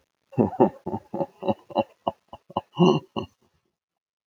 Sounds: Laughter